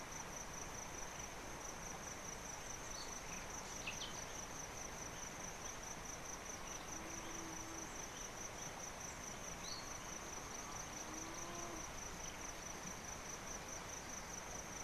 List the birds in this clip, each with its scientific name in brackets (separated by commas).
Singing Cisticola (Cisticola cantans)